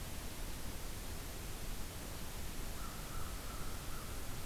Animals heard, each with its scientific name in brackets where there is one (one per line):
American Crow (Corvus brachyrhynchos)